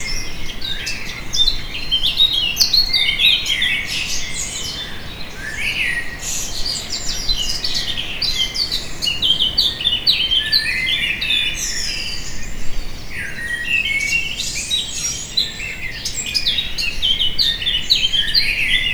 Is there more than one bird?
yes